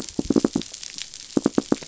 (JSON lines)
{"label": "biophony, knock", "recorder": "SoundTrap 500"}